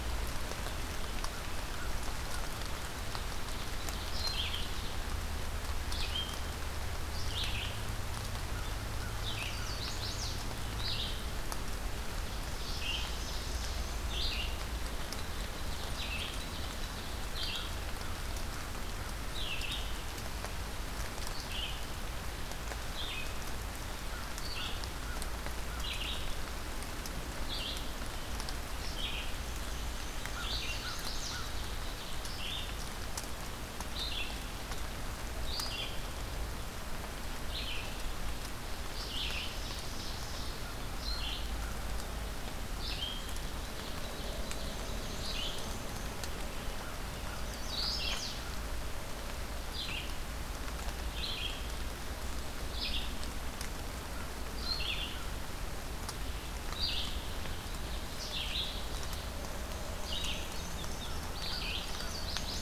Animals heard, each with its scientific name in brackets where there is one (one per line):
Ovenbird (Seiurus aurocapilla)
Red-eyed Vireo (Vireo olivaceus)
Black-and-white Warbler (Mniotilta varia)
Chestnut-sided Warbler (Setophaga pensylvanica)
American Crow (Corvus brachyrhynchos)